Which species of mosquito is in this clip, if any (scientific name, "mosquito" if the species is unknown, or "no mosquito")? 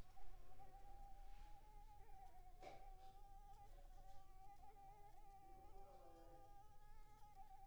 Anopheles arabiensis